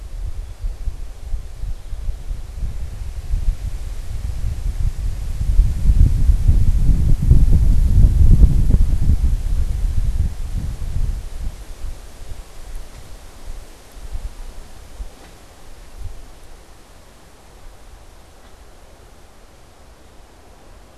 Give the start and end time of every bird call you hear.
0.0s-2.6s: Song Sparrow (Melospiza melodia)

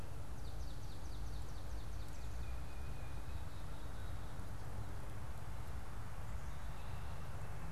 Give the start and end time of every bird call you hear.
0.2s-2.1s: Swamp Sparrow (Melospiza georgiana)
2.3s-3.4s: Tufted Titmouse (Baeolophus bicolor)
3.4s-4.3s: Black-capped Chickadee (Poecile atricapillus)
6.6s-7.7s: Black-capped Chickadee (Poecile atricapillus)

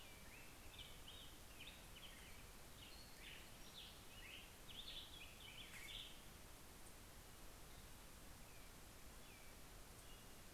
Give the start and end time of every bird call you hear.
0.0s-7.4s: Black-headed Grosbeak (Pheucticus melanocephalus)
2.1s-4.3s: Pacific-slope Flycatcher (Empidonax difficilis)

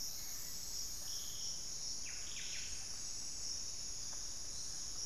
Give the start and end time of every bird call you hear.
1.8s-3.0s: Buff-breasted Wren (Cantorchilus leucotis)

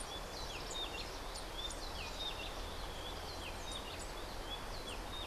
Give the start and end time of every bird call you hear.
0.0s-5.3s: Rufous-breasted Wren (Pheugopedius rutilus)

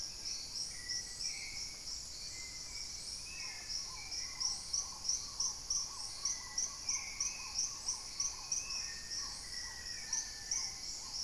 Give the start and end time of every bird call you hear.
0.0s-9.3s: Spot-winged Antshrike (Pygiptila stellaris)
0.0s-11.2s: Black-tailed Trogon (Trogon melanurus)
0.0s-11.2s: Hauxwell's Thrush (Turdus hauxwelli)
0.0s-11.2s: Paradise Tanager (Tangara chilensis)
0.4s-2.0s: Plumbeous Pigeon (Patagioenas plumbea)
8.7s-10.8s: Black-faced Antthrush (Formicarius analis)

